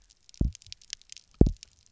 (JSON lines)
{"label": "biophony, double pulse", "recorder": "SoundTrap 300"}